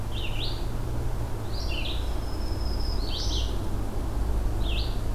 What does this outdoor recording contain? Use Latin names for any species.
Vireo olivaceus, Setophaga virens